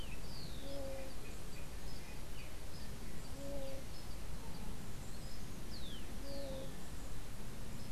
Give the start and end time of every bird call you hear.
[0.00, 0.82] Rufous-collared Sparrow (Zonotrichia capensis)
[0.00, 7.92] unidentified bird
[5.52, 6.92] Rufous-collared Sparrow (Zonotrichia capensis)

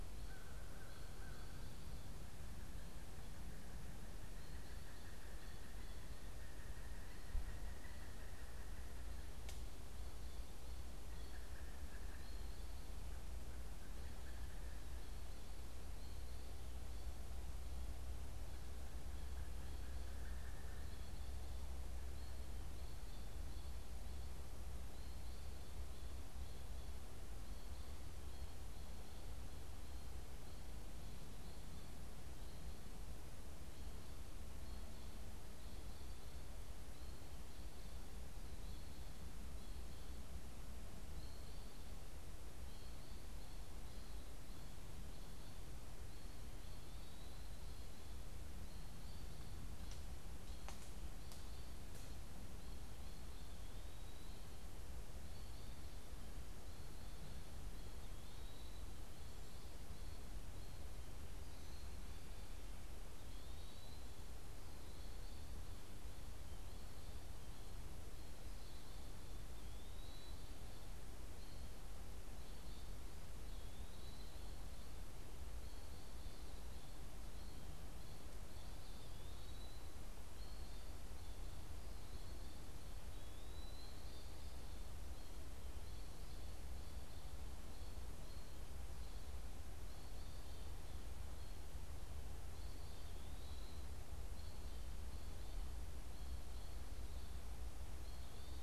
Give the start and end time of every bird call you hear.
[0.00, 2.00] American Crow (Corvus brachyrhynchos)
[1.90, 15.50] Pileated Woodpecker (Dryocopus pileatus)
[2.70, 16.40] American Goldfinch (Spinus tristis)
[40.50, 49.30] American Goldfinch (Spinus tristis)
[58.10, 98.63] Eastern Wood-Pewee (Contopus virens)

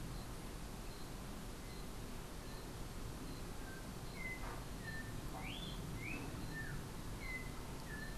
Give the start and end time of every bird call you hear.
[3.50, 8.18] Yellow-backed Oriole (Icterus chrysater)

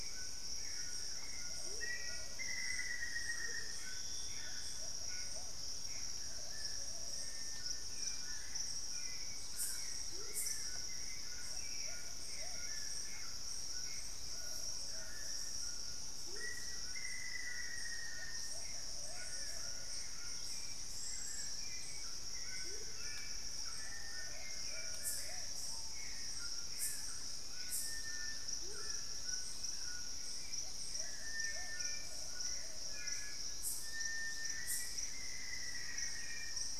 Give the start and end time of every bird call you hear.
[0.00, 1.52] unidentified bird
[0.00, 33.12] Plumbeous Pigeon (Patagioenas plumbea)
[0.00, 36.79] Hauxwell's Thrush (Turdus hauxwelli)
[0.00, 36.79] White-throated Toucan (Ramphastos tucanus)
[1.52, 3.72] Amazonian Motmot (Momotus momota)
[1.72, 3.82] Black-faced Antthrush (Formicarius analis)
[3.62, 6.12] Gray Antbird (Cercomacra cinerascens)
[7.12, 7.92] Cinereous Tinamou (Crypturellus cinereus)
[9.32, 10.22] unidentified bird
[9.92, 10.52] Amazonian Motmot (Momotus momota)
[16.12, 16.62] Amazonian Motmot (Momotus momota)
[16.32, 18.82] Black-faced Antthrush (Formicarius analis)
[20.12, 22.02] unidentified bird
[22.52, 23.02] Amazonian Motmot (Momotus momota)
[23.62, 36.79] Cinereous Tinamou (Crypturellus cinereus)
[23.72, 26.02] Screaming Piha (Lipaugus vociferans)
[26.92, 34.62] Plain-throated Antwren (Isleria hauxwelli)
[27.72, 32.72] unidentified bird
[28.42, 29.02] Amazonian Motmot (Momotus momota)
[34.22, 36.79] Black-faced Antthrush (Formicarius analis)

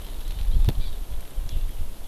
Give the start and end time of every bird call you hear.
[0.80, 0.90] Hawaii Amakihi (Chlorodrepanis virens)

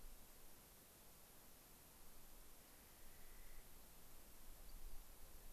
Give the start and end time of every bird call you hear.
[2.78, 3.68] Clark's Nutcracker (Nucifraga columbiana)
[4.68, 4.98] Rock Wren (Salpinctes obsoletus)

